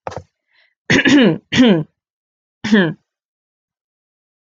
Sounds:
Throat clearing